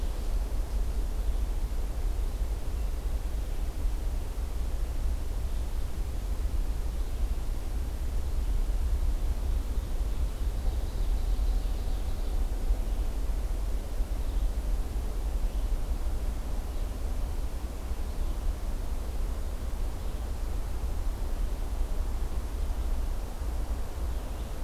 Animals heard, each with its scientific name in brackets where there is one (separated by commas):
Ovenbird (Seiurus aurocapilla), Red-eyed Vireo (Vireo olivaceus), Hermit Thrush (Catharus guttatus)